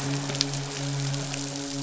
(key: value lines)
label: biophony, midshipman
recorder: SoundTrap 500